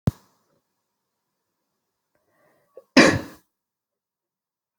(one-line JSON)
{"expert_labels": [{"quality": "ok", "cough_type": "unknown", "dyspnea": false, "wheezing": false, "stridor": false, "choking": false, "congestion": false, "nothing": true, "diagnosis": "healthy cough", "severity": "pseudocough/healthy cough"}], "age": 37, "gender": "female", "respiratory_condition": false, "fever_muscle_pain": false, "status": "symptomatic"}